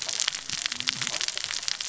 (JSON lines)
{"label": "biophony, cascading saw", "recorder": "SoundTrap 600 or HydroMoth"}